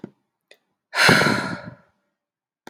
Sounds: Sigh